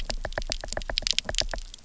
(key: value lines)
label: biophony, knock
recorder: SoundTrap 300